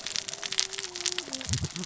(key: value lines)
label: biophony, cascading saw
recorder: SoundTrap 600 or HydroMoth